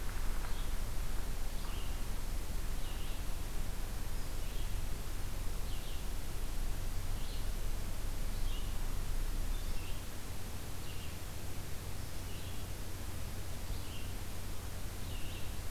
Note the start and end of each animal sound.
[0.33, 15.70] Red-eyed Vireo (Vireo olivaceus)

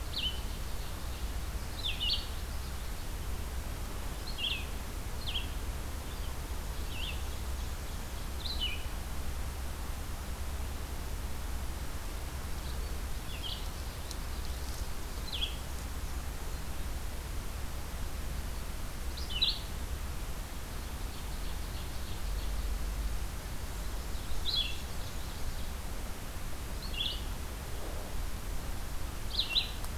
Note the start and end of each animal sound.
[0.00, 1.29] Ovenbird (Seiurus aurocapilla)
[0.00, 29.97] Red-eyed Vireo (Vireo olivaceus)
[1.41, 3.07] Common Yellowthroat (Geothlypis trichas)
[6.53, 8.42] Ovenbird (Seiurus aurocapilla)
[13.44, 14.98] Common Yellowthroat (Geothlypis trichas)
[20.80, 22.63] Ovenbird (Seiurus aurocapilla)
[23.68, 25.79] Ovenbird (Seiurus aurocapilla)

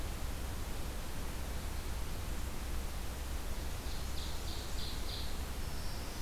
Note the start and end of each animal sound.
[3.65, 5.50] Ovenbird (Seiurus aurocapilla)
[5.43, 6.22] Black-throated Green Warbler (Setophaga virens)

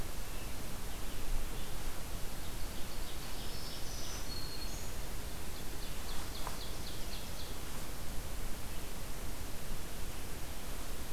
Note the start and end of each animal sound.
[0.00, 4.38] Red-eyed Vireo (Vireo olivaceus)
[2.03, 4.36] Ovenbird (Seiurus aurocapilla)
[3.23, 5.00] Black-throated Green Warbler (Setophaga virens)
[5.30, 7.65] Ovenbird (Seiurus aurocapilla)

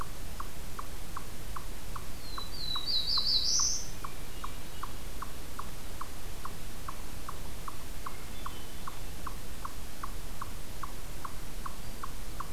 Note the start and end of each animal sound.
[0.00, 12.52] Eastern Chipmunk (Tamias striatus)
[2.05, 3.96] Black-throated Blue Warbler (Setophaga caerulescens)
[3.89, 5.33] Hermit Thrush (Catharus guttatus)
[7.58, 9.35] Hermit Thrush (Catharus guttatus)

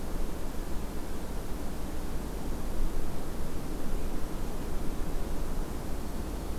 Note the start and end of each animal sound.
[5.91, 6.59] Black-throated Green Warbler (Setophaga virens)

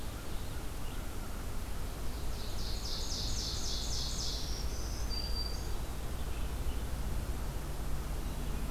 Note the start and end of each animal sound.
[0.00, 1.91] American Crow (Corvus brachyrhynchos)
[1.78, 4.73] Ovenbird (Seiurus aurocapilla)
[4.35, 5.82] Black-throated Green Warbler (Setophaga virens)

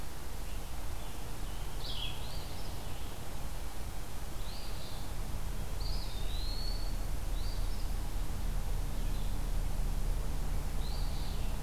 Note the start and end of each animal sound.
[0.38, 2.49] Scarlet Tanager (Piranga olivacea)
[1.69, 2.21] Red-eyed Vireo (Vireo olivaceus)
[2.19, 2.78] Eastern Phoebe (Sayornis phoebe)
[4.33, 5.14] Eastern Phoebe (Sayornis phoebe)
[5.68, 7.05] Eastern Wood-Pewee (Contopus virens)
[7.18, 7.94] Eastern Phoebe (Sayornis phoebe)
[8.78, 9.39] Red-eyed Vireo (Vireo olivaceus)
[10.71, 11.44] Eastern Phoebe (Sayornis phoebe)

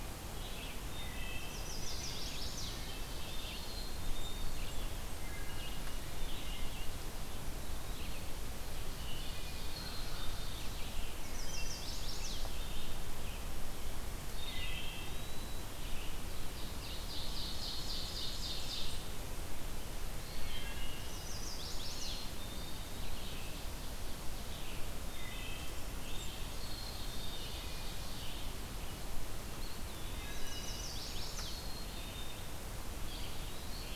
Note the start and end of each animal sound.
[0.00, 33.95] Red-eyed Vireo (Vireo olivaceus)
[0.82, 1.92] Wood Thrush (Hylocichla mustelina)
[1.34, 2.88] Chestnut-sided Warbler (Setophaga pensylvanica)
[2.52, 3.32] Wood Thrush (Hylocichla mustelina)
[3.47, 4.95] Black-capped Chickadee (Poecile atricapillus)
[3.75, 5.37] Blackburnian Warbler (Setophaga fusca)
[5.04, 6.17] Wood Thrush (Hylocichla mustelina)
[7.35, 8.38] Eastern Wood-Pewee (Contopus virens)
[8.84, 9.58] Wood Thrush (Hylocichla mustelina)
[9.66, 10.52] Black-capped Chickadee (Poecile atricapillus)
[10.94, 12.32] Blackburnian Warbler (Setophaga fusca)
[10.98, 12.59] Chestnut-sided Warbler (Setophaga pensylvanica)
[11.39, 12.14] Wood Thrush (Hylocichla mustelina)
[14.23, 15.70] Eastern Wood-Pewee (Contopus virens)
[14.25, 15.12] Wood Thrush (Hylocichla mustelina)
[16.37, 19.19] Ovenbird (Seiurus aurocapilla)
[17.90, 19.54] Blackburnian Warbler (Setophaga fusca)
[20.18, 21.37] Wood Thrush (Hylocichla mustelina)
[20.93, 22.47] Chestnut-sided Warbler (Setophaga pensylvanica)
[21.79, 22.91] Black-capped Chickadee (Poecile atricapillus)
[24.85, 26.15] Wood Thrush (Hylocichla mustelina)
[25.23, 27.23] Blackburnian Warbler (Setophaga fusca)
[26.39, 27.59] Black-capped Chickadee (Poecile atricapillus)
[29.48, 30.93] Eastern Wood-Pewee (Contopus virens)
[30.03, 31.10] Wood Thrush (Hylocichla mustelina)
[30.13, 31.63] Chestnut-sided Warbler (Setophaga pensylvanica)
[31.35, 32.67] Black-capped Chickadee (Poecile atricapillus)
[32.92, 33.95] Eastern Wood-Pewee (Contopus virens)

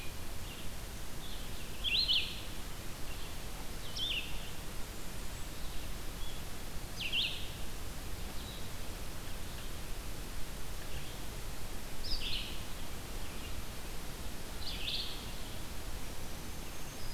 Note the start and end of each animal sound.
[1.74, 17.14] Red-eyed Vireo (Vireo olivaceus)
[4.16, 5.57] Blackburnian Warbler (Setophaga fusca)
[15.80, 17.14] Black-throated Green Warbler (Setophaga virens)

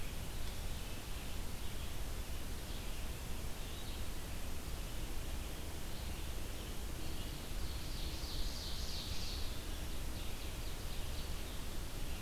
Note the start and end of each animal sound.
[0.00, 12.21] Red-eyed Vireo (Vireo olivaceus)
[7.42, 9.74] Ovenbird (Seiurus aurocapilla)
[10.01, 11.39] Ovenbird (Seiurus aurocapilla)

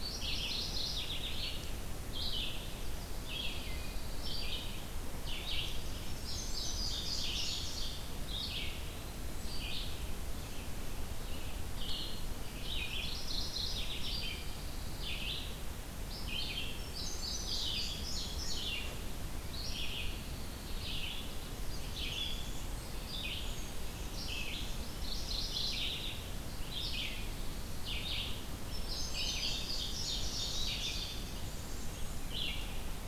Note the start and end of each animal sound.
[0.00, 1.63] Mourning Warbler (Geothlypis philadelphia)
[0.00, 33.07] Red-eyed Vireo (Vireo olivaceus)
[3.04, 4.67] Pine Warbler (Setophaga pinus)
[5.98, 8.04] Indigo Bunting (Passerina cyanea)
[13.07, 14.52] Mourning Warbler (Geothlypis philadelphia)
[13.93, 15.27] Pine Warbler (Setophaga pinus)
[16.80, 19.00] Indigo Bunting (Passerina cyanea)
[19.60, 21.19] Pine Warbler (Setophaga pinus)
[21.56, 23.07] Blackburnian Warbler (Setophaga fusca)
[23.42, 25.59] Indigo Bunting (Passerina cyanea)
[24.98, 26.33] Mourning Warbler (Geothlypis philadelphia)
[28.61, 31.40] Indigo Bunting (Passerina cyanea)
[30.55, 32.47] Blackburnian Warbler (Setophaga fusca)

